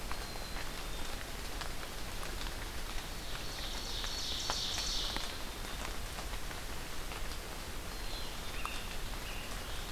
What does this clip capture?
Black-capped Chickadee, Ovenbird, Scarlet Tanager